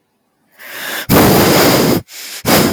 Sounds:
Sneeze